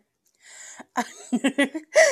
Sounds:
Laughter